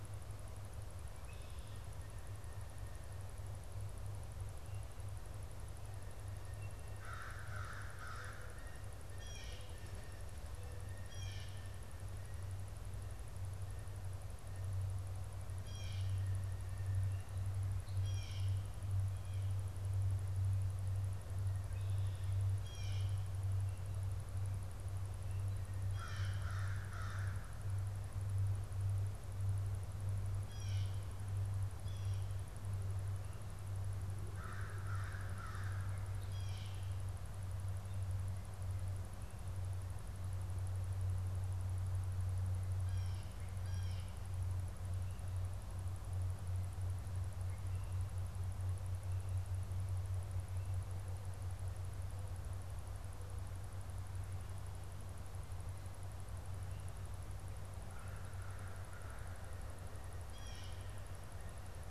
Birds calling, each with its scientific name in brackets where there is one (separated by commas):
American Crow (Corvus brachyrhynchos), Blue Jay (Cyanocitta cristata)